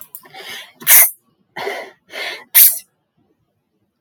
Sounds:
Sniff